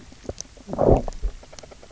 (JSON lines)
{"label": "biophony, low growl", "recorder": "SoundTrap 300"}